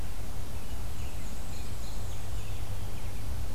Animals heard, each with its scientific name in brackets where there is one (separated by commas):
Black-and-white Warbler (Mniotilta varia)